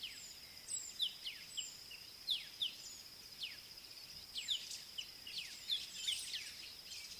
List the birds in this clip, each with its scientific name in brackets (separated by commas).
Scarlet-chested Sunbird (Chalcomitra senegalensis), Black-backed Puffback (Dryoscopus cubla)